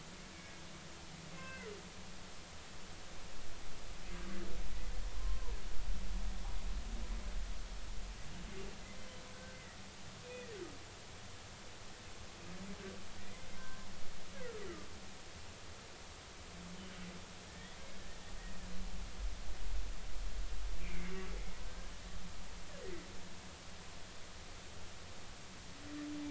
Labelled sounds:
1.3	1.7	humpback whale, 1.4 to 2.2 kHz
2.3	2.7	humpback whale, 2.6 to 2.7 kHz
5.2	5.5	humpback whale, 0.90 to 1.1 kHz
9.3	9.6	humpback whale, 1.5 to 1.6 kHz
10.2	10.6	humpback whale, 1.7 to 2.6 kHz
13.6	13.9	humpback whale, 0.99 to 1.8 kHz
17.5	17.8	humpback whale, 1.7 to 2.0 kHz
20.8	21.9	humpback whale, 1.5 to 2.6 kHz

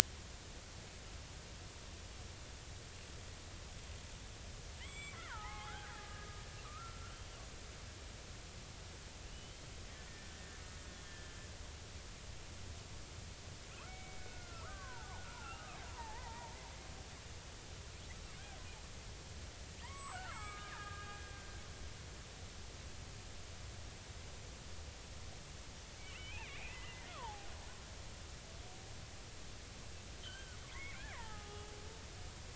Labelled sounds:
4.8	6.2	killer whale, Bigg's (transient), 0.80 to 7.8 kHz
6.6	7.1	killer whale, Bigg's (transient), 1.1 to 1.5 kHz
9.2	9.6	killer whale, Bigg's (transient), 2.7 to 3.2 kHz
10.1	10.6	killer whale, Bigg's (transient), 1.7 to 1.9 kHz
11.0	11.4	killer whale, Bigg's (transient), 1.7 to 3.3 kHz
13.9	16.5	killer whale, Bigg's (transient), 0.80 to 2.3 kHz
19.8	21.5	killer whale, Bigg's (transient), 0.80 to 8.0 kHz
26.0	27.5	killer whale, Bigg's (transient), 0.80 to 3.2 kHz
30.2	31.7	killer whale, Bigg's (transient), 0.80 to 3.5 kHz

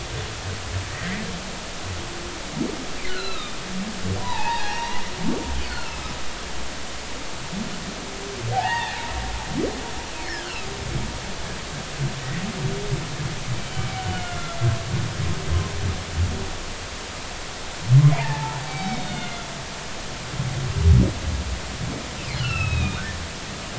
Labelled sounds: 0.9	1.2	humpback whale, 1.8 to 2.1 kHz
3.1	6.1	humpback whale, 0.80 to 5.4 kHz
8.5	9.0	humpback whale, 0.80 to 3.8 kHz
10.3	10.7	humpback whale, 1.2 to 2.0 kHz
14.2	14.6	humpback whale, 1.3 to 2.2 kHz
18.1	19.4	humpback whale, 0.80 to 5.4 kHz
22.4	23.0	humpback whale, 1.2 to 3.9 kHz

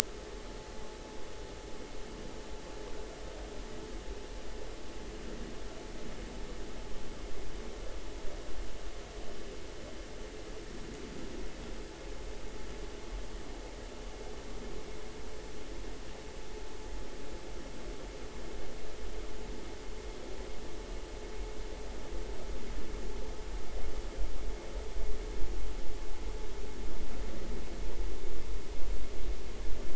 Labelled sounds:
0.0	0.3	vessel noise, 1.5 to 1.6 kHz

